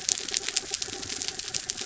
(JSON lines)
{"label": "anthrophony, mechanical", "recorder": "SoundTrap 300"}